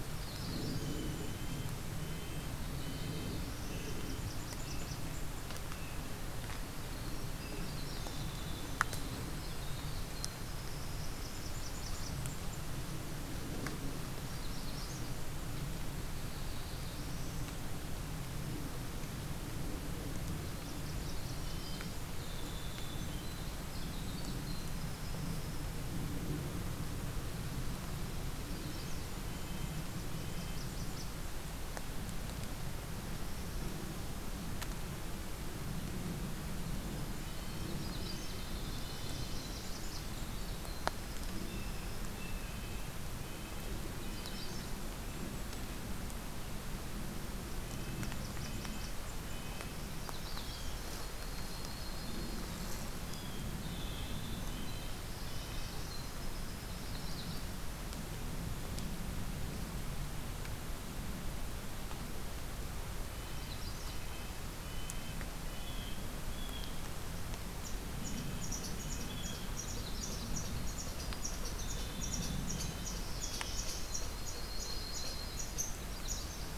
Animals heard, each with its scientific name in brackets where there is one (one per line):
Black-throated Blue Warbler (Setophaga caerulescens)
Blue Jay (Cyanocitta cristata)
Winter Wren (Troglodytes hiemalis)
Golden-crowned Kinglet (Regulus satrapa)
Yellow-rumped Warbler (Setophaga coronata)
Magnolia Warbler (Setophaga magnolia)
Red Squirrel (Tamiasciurus hudsonicus)
Red-breasted Nuthatch (Sitta canadensis)
Blackburnian Warbler (Setophaga fusca)